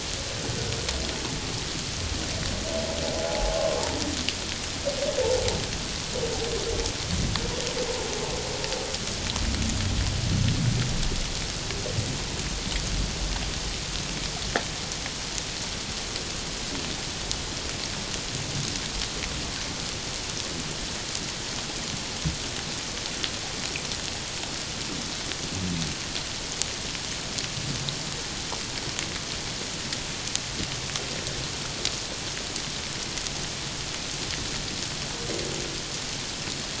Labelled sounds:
3.3	3.8	humpback whale, 0.78 to 1.2 kHz

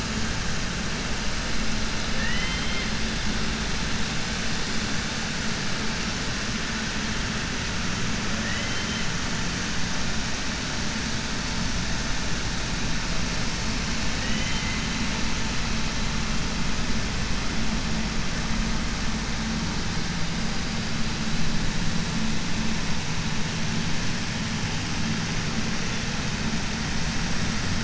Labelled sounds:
2.1	2.9	killer whale, 0.95 to 3.9 kHz
14.1	14.9	killer whale, 1.8 to 3.7 kHz

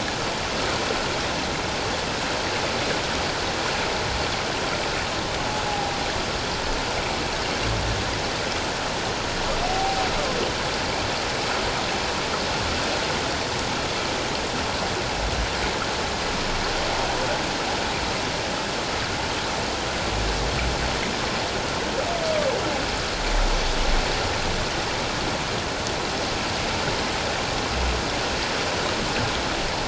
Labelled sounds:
5.7	5.9	humpback whale, 0.78 to 0.88 kHz
9.6	10.0	humpback whale, 0.78 to 0.81 kHz

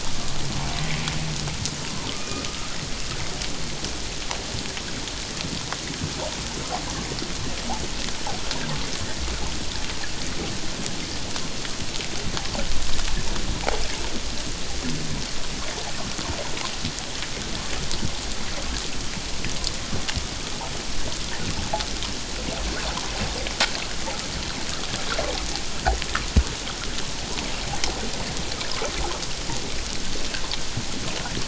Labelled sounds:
2.1	2.4	humpback whale, 1.2 to 2.5 kHz

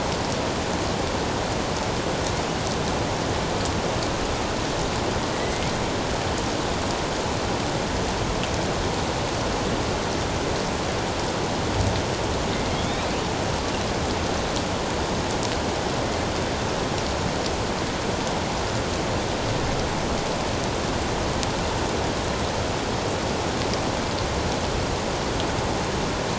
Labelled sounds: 5.3	5.7	killer whale, northern resident, 1.9 to 2.3 kHz
12.7	13.1	killer whale, northern resident, 3.1 to 4.0 kHz

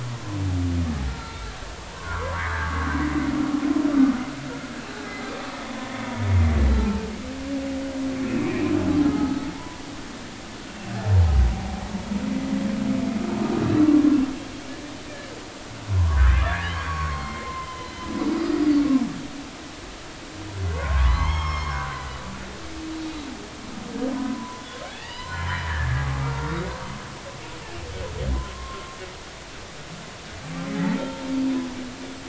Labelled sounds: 1.1	1.5	humpback whale, 1.3 to 1.4 kHz
1.9	2.9	humpback whale, 0.93 to 1.7 kHz
5.0	5.2	humpback whale, 1.6 to 1.7 kHz
6.7	7.0	humpback whale, 0.80 to 0.93 kHz
8.3	8.7	humpback whale, 2.1 to 2.7 kHz
9.0	9.8	humpback whale, 0.86 to 4.4 kHz
13.8	14.2	humpback whale, 1.0 to 1.2 kHz
15.1	15.3	humpback whale, 1.7 to 1.8 kHz
16.0	18.7	humpback whale, 0.93 to 5.1 kHz
20.7	22.2	humpback whale, 0.83 to 6.6 kHz
24.2	26.7	humpback whale, 0.83 to 4.1 kHz
28.3	29.0	humpback whale, 0.96 to 1.2 kHz
30.8	31.3	humpback whale, 0.83 to 3.4 kHz

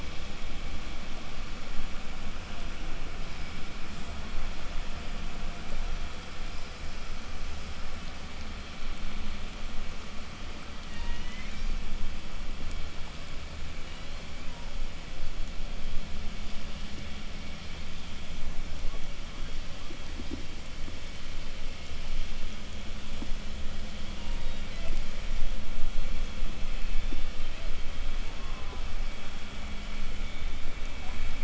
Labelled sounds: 10.7	11.9	killer whale, southern resident, call S01, 0.60 to 6.6 kHz
13.6	14.9	killer whale, southern resident, 0.78 to 4.7 kHz
24.1	25.2	killer whale, southern resident, 0.43 to 5.0 kHz
26.6	27.9	killer whale, southern resident, 0.36 to 4.5 kHz
28.0	29.0	killer whale, southern resident, call S04, 0.28 to 1.4 kHz

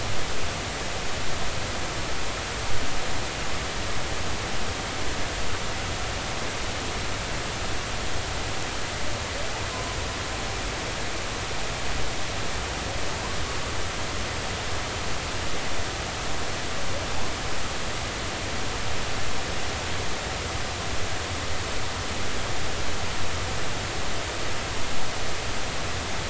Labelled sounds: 9.7	10.0	humpback whale, 0.96 to 1.1 kHz

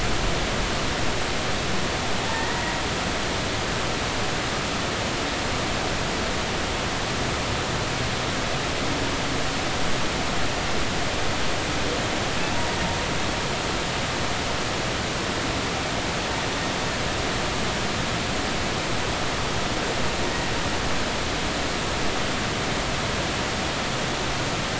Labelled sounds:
2.3	2.7	humpback whale, 0.83 to 2.0 kHz

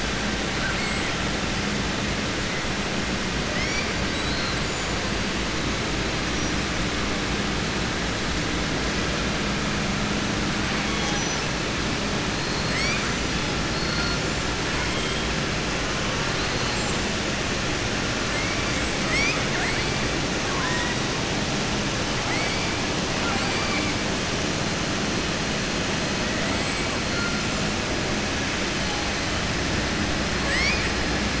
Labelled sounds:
3.4	4.6	killer whale, southern resident, 1.2 to 4.7 kHz
13.7	14.2	killer whale, southern resident, 4.1 to 5.3 kHz
19.6	20.1	killer whale, southern resident, 7.1 to 8.0 kHz
20.4	21.0	killer whale, southern resident, 0.94 to 2.4 kHz
23.1	23.9	killer whale, southern resident, 0.76 to 2.5 kHz
30.4	30.9	killer whale, southern resident, 1.1 to 6.2 kHz

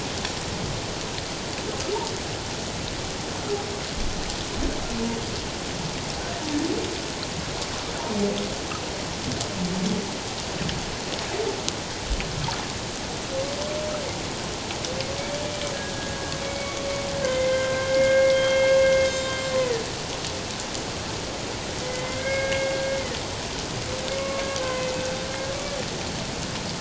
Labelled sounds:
15.9	16.8	humpback whale, 1.6 to 2.3 kHz
17.2	19.3	humpback whale, 1.5 to 7.4 kHz
19.6	19.8	humpback whale, 1.7 to 2.1 kHz
21.8	22.7	humpback whale, 1.5 to 2.2 kHz
24.2	24.9	humpback whale, 0.97 to 2.3 kHz

